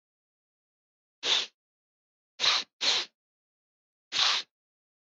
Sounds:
Sniff